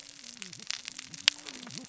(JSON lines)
{"label": "biophony, cascading saw", "recorder": "SoundTrap 600 or HydroMoth"}